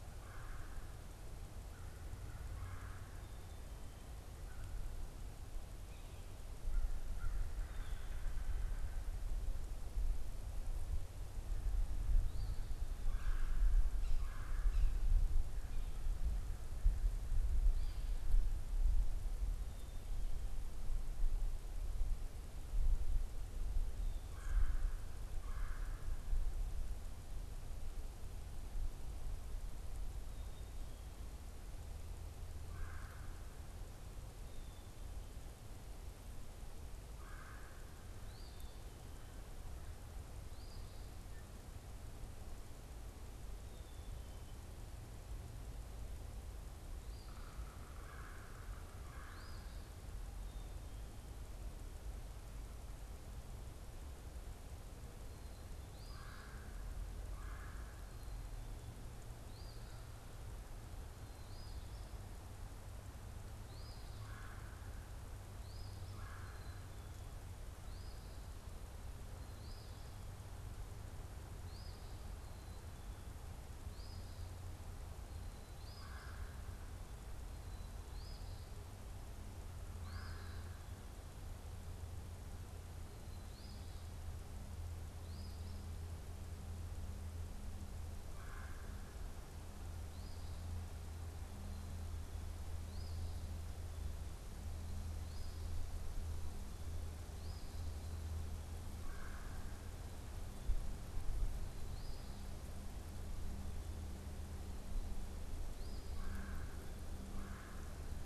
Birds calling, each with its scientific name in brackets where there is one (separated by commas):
American Crow (Corvus brachyrhynchos), Black-capped Chickadee (Poecile atricapillus), Eastern Phoebe (Sayornis phoebe), unidentified bird, Red-bellied Woodpecker (Melanerpes carolinus), Yellow-bellied Sapsucker (Sphyrapicus varius)